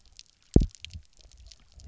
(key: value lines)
label: biophony, double pulse
recorder: SoundTrap 300